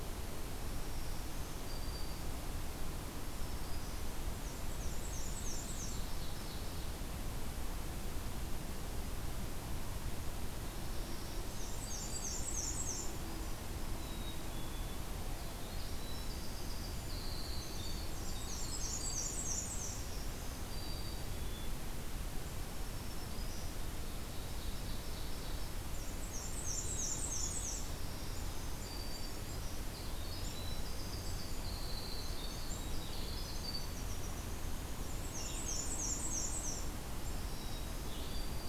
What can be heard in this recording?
Black-throated Green Warbler, Black-and-white Warbler, Ovenbird, Black-capped Chickadee, Winter Wren, Blue-headed Vireo